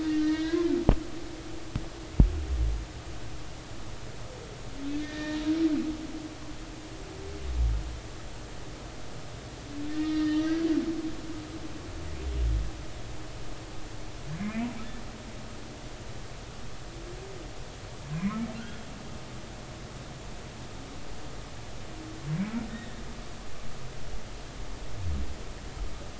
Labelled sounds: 0.0	0.7	humpback whale, 1.5 to 6.0 kHz
5.0	5.4	humpback whale, 1.7 to 3.8 kHz
9.9	10.6	humpback whale, 1.8 to 3.8 kHz
14.4	14.7	humpback whale, 2.0 to 2.7 kHz
23.7	24.0	humpback whale, 1.7 to 1.9 kHz

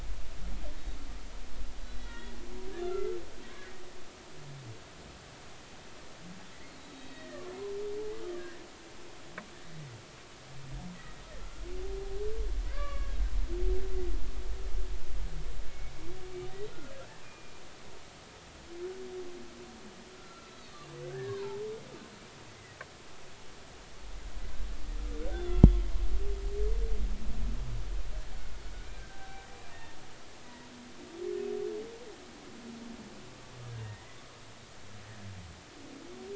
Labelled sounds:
1.8	2.4	humpback whale, 1.8 to 4.1 kHz
2.8	3.1	humpback whale, 1.3 to 2.1 kHz
7.1	7.4	humpback whale, 1.7 to 2.0 kHz
8.3	8.6	humpback whale, 1.5 to 1.9 kHz
11.4	11.7	humpback whale, 1.3 to 1.5 kHz
12.6	14.1	humpback whale, 1.0 to 2.9 kHz
15.7	16.7	humpback whale, 1.8 to 2.3 kHz
17.2	17.6	humpback whale, 2.4 to 2.5 kHz
20.1	21.6	humpback whale, 0.83 to 4.7 kHz
22.5	22.8	humpback whale, 1.9 to 2.1 kHz
25.3	25.6	humpback whale, 3.3 to 3.6 kHz
28.9	30.7	humpback whale, 0.80 to 2.0 kHz
33.8	34.1	humpback whale, 1.8 to 1.9 kHz

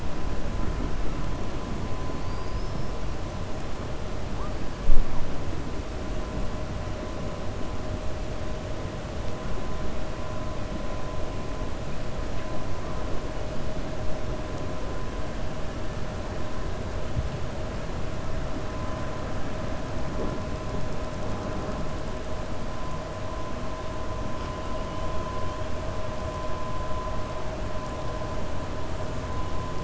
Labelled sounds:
2.1	2.9	killer whale, 4.4 to 5.3 kHz

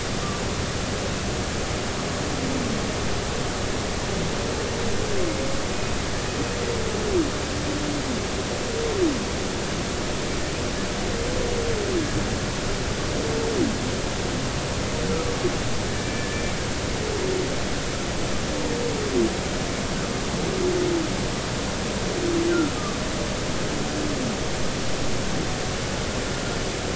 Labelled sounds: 15.9	16.6	humpback whale, 1.7 to 2.4 kHz

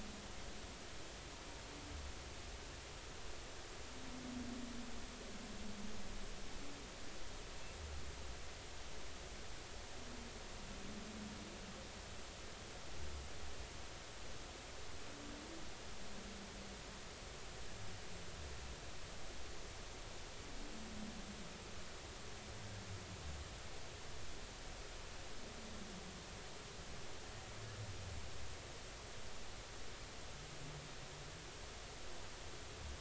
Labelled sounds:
22.6	22.9	humpback whale, 1.5 to 1.8 kHz

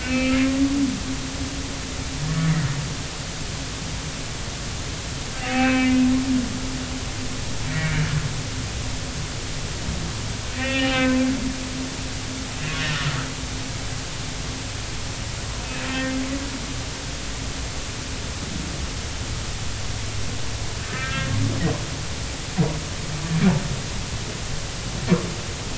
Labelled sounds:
0.0	0.4	humpback whale, 1.2 to 2.7 kHz
2.2	2.5	humpback whale, 1.7 to 1.8 kHz
5.4	6.0	humpback whale, 0.80 to 2.9 kHz
7.7	8.1	humpback whale, 1.5 to 2.4 kHz
10.5	11.2	humpback whale, 0.80 to 3.0 kHz
12.8	13.1	humpback whale, 1.2 to 1.6 kHz
15.6	16.1	humpback whale, 1.8 to 2.6 kHz
20.9	21.3	humpback whale, 1.2 to 1.9 kHz

